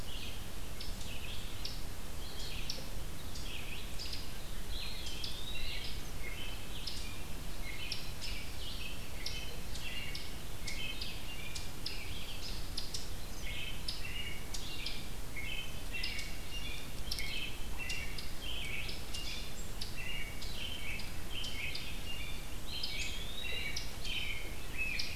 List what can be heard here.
Red-eyed Vireo, Eastern Wood-Pewee, American Robin